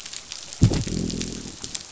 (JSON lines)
{"label": "biophony, growl", "recorder": "SoundTrap 500"}